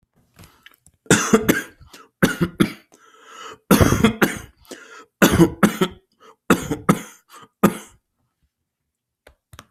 {"expert_labels": [{"quality": "ok", "cough_type": "wet", "dyspnea": false, "wheezing": false, "stridor": false, "choking": false, "congestion": false, "nothing": true, "diagnosis": "COVID-19", "severity": "severe"}], "age": 60, "gender": "male", "respiratory_condition": false, "fever_muscle_pain": false, "status": "healthy"}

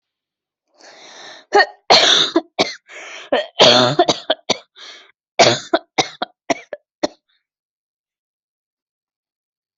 {"expert_labels": [{"quality": "ok", "cough_type": "dry", "dyspnea": false, "wheezing": false, "stridor": false, "choking": false, "congestion": false, "nothing": true, "diagnosis": "lower respiratory tract infection", "severity": "mild"}], "gender": "female", "respiratory_condition": false, "fever_muscle_pain": false, "status": "COVID-19"}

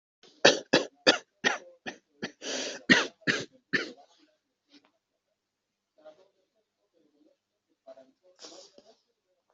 {"expert_labels": [{"quality": "good", "cough_type": "dry", "dyspnea": false, "wheezing": false, "stridor": false, "choking": false, "congestion": true, "nothing": false, "diagnosis": "upper respiratory tract infection", "severity": "mild"}], "age": 25, "gender": "male", "respiratory_condition": false, "fever_muscle_pain": false, "status": "symptomatic"}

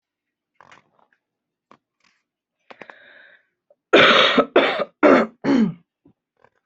{"expert_labels": [{"quality": "good", "cough_type": "wet", "dyspnea": false, "wheezing": false, "stridor": false, "choking": false, "congestion": false, "nothing": true, "diagnosis": "healthy cough", "severity": "pseudocough/healthy cough"}], "age": 31, "gender": "female", "respiratory_condition": false, "fever_muscle_pain": false, "status": "symptomatic"}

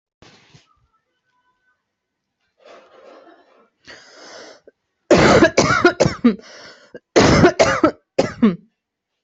{"expert_labels": [{"quality": "ok", "cough_type": "unknown", "dyspnea": false, "wheezing": false, "stridor": false, "choking": false, "congestion": false, "nothing": true, "diagnosis": "COVID-19", "severity": "mild"}], "age": 24, "gender": "female", "respiratory_condition": false, "fever_muscle_pain": false, "status": "healthy"}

